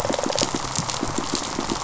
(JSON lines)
{"label": "biophony, pulse", "recorder": "SoundTrap 500"}
{"label": "biophony, rattle response", "recorder": "SoundTrap 500"}